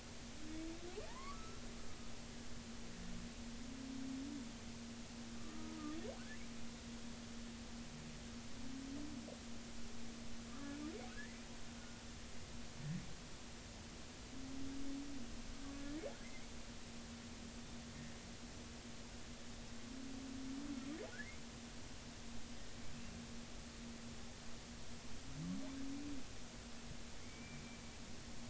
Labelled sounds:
1.1	1.6	humpback whale, 0.83 to 1.4 kHz
5.4	5.8	humpback whale, 1.1 to 1.3 kHz
10.5	11.4	humpback whale, 1.1 to 2.1 kHz
15.8	16.5	humpback whale, 1.7 to 2.3 kHz
21.1	21.4	humpback whale, 1.4 to 2.4 kHz
27.2	27.6	humpback whale, 2.0 to 2.4 kHz

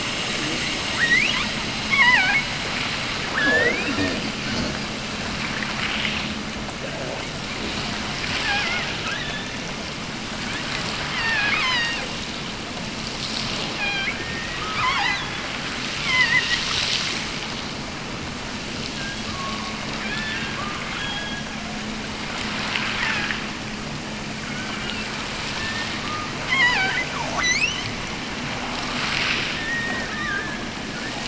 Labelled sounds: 0.9	1.4	killer whale, offshore, 1.2 to 6.7 kHz
1.7	2.5	killer whale, offshore, 0.64 to 5.9 kHz
3.2	5.0	killer whale, offshore, 0.68 to 6.8 kHz
8.1	9.7	killer whale, offshore, 0.48 to 4.1 kHz
10.9	12.1	killer whale, offshore, 0.59 to 7.5 kHz
13.5	15.5	killer whale, offshore, 0.57 to 8.0 kHz
15.9	16.7	killer whale, offshore, 0.73 to 5.0 kHz
18.8	21.6	killer whale, offshore, 0.64 to 5.5 kHz
22.7	23.4	killer whale, offshore, 0.61 to 3.3 kHz
24.4	25.2	killer whale, offshore, 1.0 to 3.2 kHz
25.5	28.0	killer whale, offshore, 0.34 to 8.0 kHz
29.4	30.7	killer whale, offshore, 0.91 to 2.1 kHz

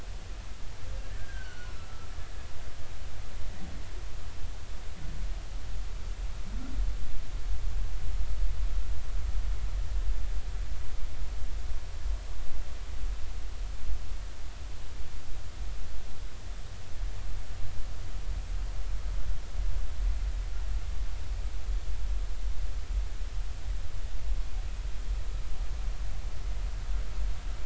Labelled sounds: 1.2	1.7	humpback whale, 1.4 to 1.7 kHz

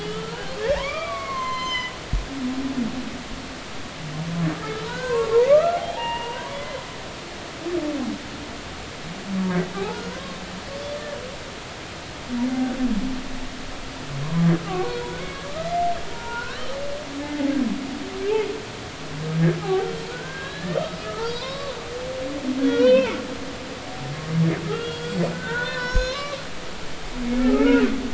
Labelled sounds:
0.0	1.9	humpback whale, 0.86 to 7.3 kHz
4.9	6.8	humpback whale, 0.80 to 2.9 kHz
9.7	11.0	humpback whale, 0.80 to 4.7 kHz
14.5	16.6	humpback whale, 0.86 to 2.1 kHz
17.2	17.5	humpback whale, 0.80 to 2.2 kHz
19.6	21.8	humpback whale, 0.80 to 5.0 kHz
22.6	23.2	humpback whale, 1.4 to 4.1 kHz
24.7	26.4	humpback whale, 0.86 to 6.7 kHz
27.4	27.8	humpback whale, 1.2 to 2.3 kHz

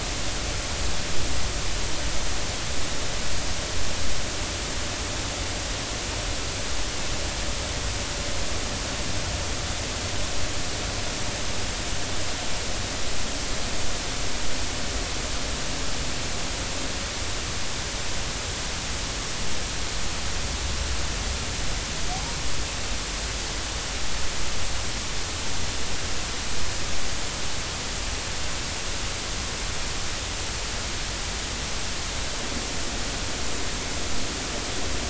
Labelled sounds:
22.1	22.4	humpback whale, 0.80 to 0.99 kHz

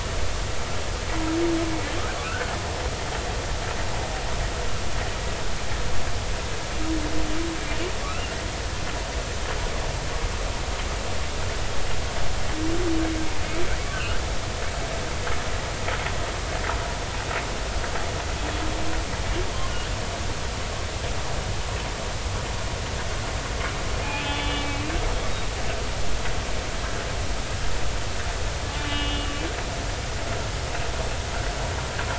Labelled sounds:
2.2	2.5	humpback whale, 1.3 to 1.6 kHz
8.1	8.3	humpback whale, 2.5 to 2.9 kHz
13.9	14.2	humpback whale, 1.3 to 1.7 kHz
24.2	24.9	humpback whale, 2.2 to 3.6 kHz
28.7	29.3	humpback whale, 1.7 to 3.5 kHz

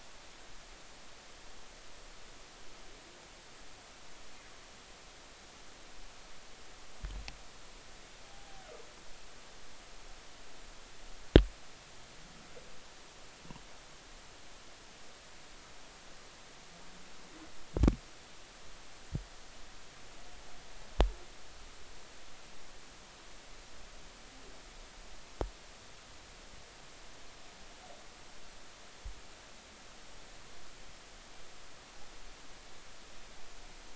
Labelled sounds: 8.3	8.6	humpback whale, 0.80 to 0.83 kHz

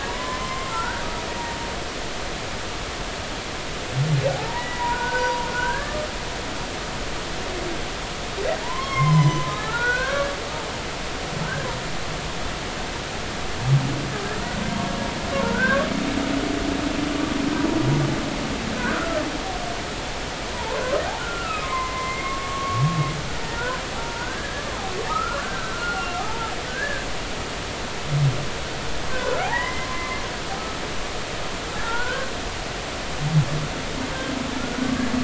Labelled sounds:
0.1	1.1	humpback whale, 0.86 to 1.7 kHz
4.3	6.1	humpback whale, 0.80 to 2.0 kHz
8.6	10.2	humpback whale, 0.83 to 5.5 kHz
15.4	15.8	humpback whale, 1.3 to 1.7 kHz
18.9	19.2	humpback whale, 1.3 to 1.5 kHz
20.5	22.8	humpback whale, 0.83 to 2.2 kHz
23.4	24.6	humpback whale, 0.86 to 1.8 kHz
25.1	27.1	humpback whale, 0.80 to 1.8 kHz
29.1	30.2	humpback whale, 0.80 to 2.1 kHz
31.8	32.3	humpback whale, 0.86 to 1.7 kHz

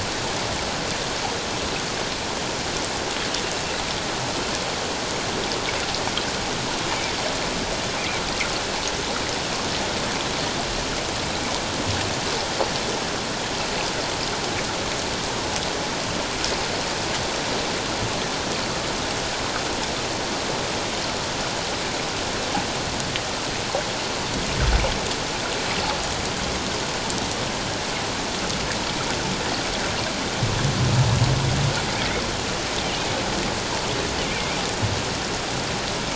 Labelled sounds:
34.2	34.6	killer whale, offshore, call OFF07, 2.1 to 2.5 kHz

